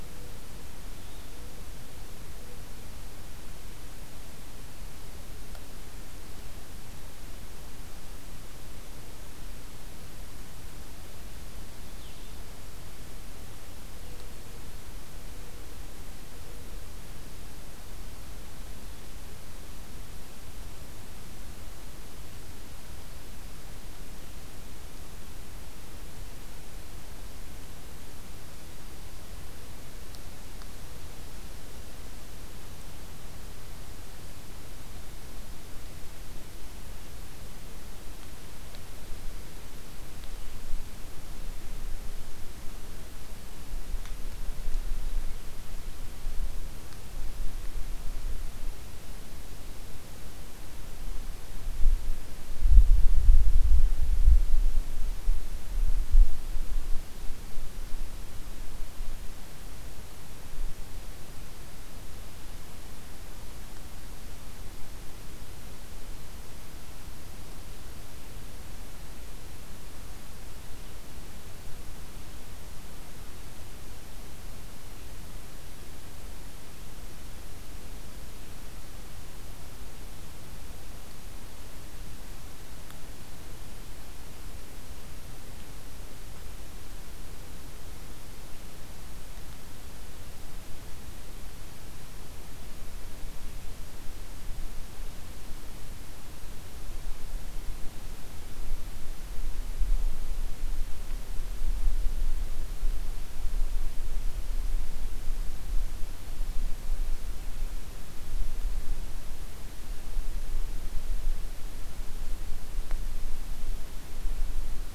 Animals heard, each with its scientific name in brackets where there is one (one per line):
Blue-headed Vireo (Vireo solitarius)
Mourning Dove (Zenaida macroura)